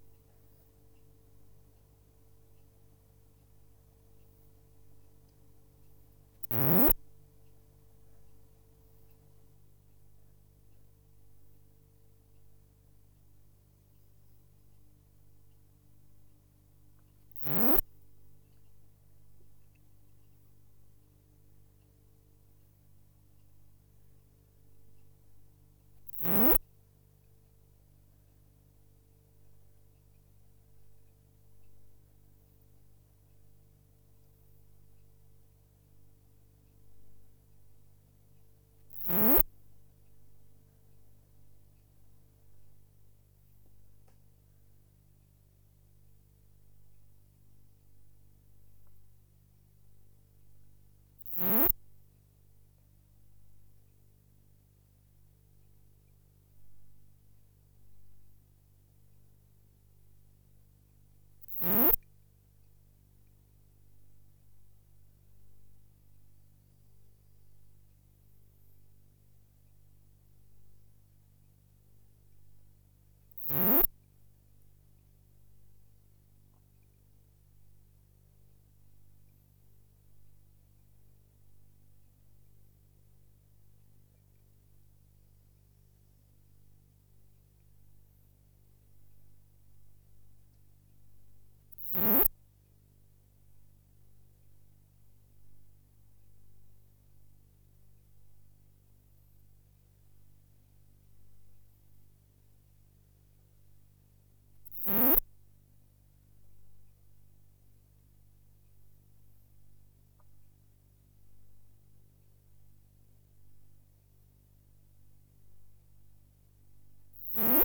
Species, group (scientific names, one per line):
Poecilimon lodosi
Orthoptera